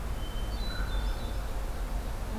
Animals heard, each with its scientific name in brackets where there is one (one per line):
American Crow (Corvus brachyrhynchos)
Hermit Thrush (Catharus guttatus)